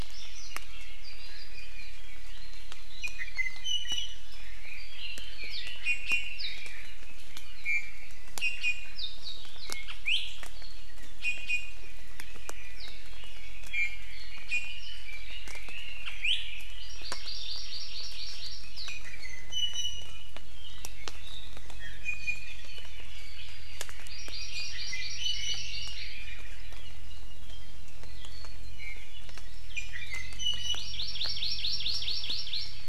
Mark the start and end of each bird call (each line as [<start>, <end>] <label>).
[2.92, 4.32] Iiwi (Drepanis coccinea)
[4.62, 7.12] Red-billed Leiothrix (Leiothrix lutea)
[5.82, 6.42] Iiwi (Drepanis coccinea)
[7.62, 8.02] Iiwi (Drepanis coccinea)
[8.42, 8.92] Iiwi (Drepanis coccinea)
[10.02, 10.22] Iiwi (Drepanis coccinea)
[11.22, 11.92] Iiwi (Drepanis coccinea)
[13.12, 16.82] Red-billed Leiothrix (Leiothrix lutea)
[13.72, 14.22] Iiwi (Drepanis coccinea)
[14.52, 14.82] Iiwi (Drepanis coccinea)
[16.22, 16.42] Iiwi (Drepanis coccinea)
[16.82, 18.72] Hawaii Amakihi (Chlorodrepanis virens)
[18.92, 20.52] Iiwi (Drepanis coccinea)
[21.72, 22.62] Iiwi (Drepanis coccinea)
[24.02, 26.22] Hawaii Amakihi (Chlorodrepanis virens)
[24.12, 26.72] Red-billed Leiothrix (Leiothrix lutea)
[25.22, 25.62] Iiwi (Drepanis coccinea)
[28.62, 29.12] Iiwi (Drepanis coccinea)
[29.72, 31.02] Iiwi (Drepanis coccinea)
[30.72, 32.82] Hawaii Amakihi (Chlorodrepanis virens)